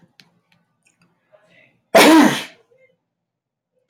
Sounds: Sneeze